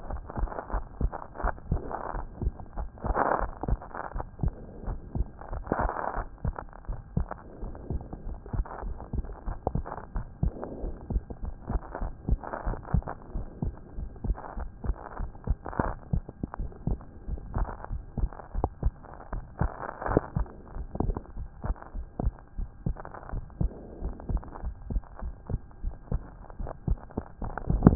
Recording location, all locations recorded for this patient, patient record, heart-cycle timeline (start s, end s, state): pulmonary valve (PV)
aortic valve (AV)+pulmonary valve (PV)+tricuspid valve (TV)+mitral valve (MV)
#Age: Child
#Sex: Male
#Height: 126.0 cm
#Weight: 20.6 kg
#Pregnancy status: False
#Murmur: Unknown
#Murmur locations: nan
#Most audible location: nan
#Systolic murmur timing: nan
#Systolic murmur shape: nan
#Systolic murmur grading: nan
#Systolic murmur pitch: nan
#Systolic murmur quality: nan
#Diastolic murmur timing: nan
#Diastolic murmur shape: nan
#Diastolic murmur grading: nan
#Diastolic murmur pitch: nan
#Diastolic murmur quality: nan
#Outcome: Normal
#Campaign: 2014 screening campaign
0.00	4.03	unannotated
4.03	4.14	diastole
4.14	4.24	S1
4.24	4.42	systole
4.42	4.52	S2
4.52	4.86	diastole
4.86	4.98	S1
4.98	5.16	systole
5.16	5.26	S2
5.26	5.52	diastole
5.52	5.64	S1
5.64	5.80	systole
5.80	5.90	S2
5.90	6.16	diastole
6.16	6.26	S1
6.26	6.44	systole
6.44	6.54	S2
6.54	6.88	diastole
6.88	6.98	S1
6.98	7.16	systole
7.16	7.28	S2
7.28	7.62	diastole
7.62	7.74	S1
7.74	7.90	systole
7.90	8.02	S2
8.02	8.26	diastole
8.26	8.38	S1
8.38	8.54	systole
8.54	8.64	S2
8.64	8.84	diastole
8.84	8.96	S1
8.96	9.14	systole
9.14	9.22	S2
9.22	9.46	diastole
9.46	9.58	S1
9.58	9.74	systole
9.74	9.84	S2
9.84	10.14	diastole
10.14	10.26	S1
10.26	10.42	systole
10.42	10.52	S2
10.52	10.82	diastole
10.82	10.94	S1
10.94	11.10	systole
11.10	11.22	S2
11.22	11.44	diastole
11.44	11.54	S1
11.54	11.70	systole
11.70	11.78	S2
11.78	12.02	diastole
12.02	12.12	S1
12.12	12.28	systole
12.28	12.34	S2
12.34	12.66	diastole
12.66	12.78	S1
12.78	12.92	systole
12.92	13.04	S2
13.04	13.34	diastole
13.34	13.46	S1
13.46	13.62	systole
13.62	13.74	S2
13.74	13.98	diastole
13.98	14.10	S1
14.10	14.26	systole
14.26	14.36	S2
14.36	14.58	diastole
14.58	14.68	S1
14.68	14.86	systole
14.86	14.94	S2
14.94	15.20	diastole
15.20	27.95	unannotated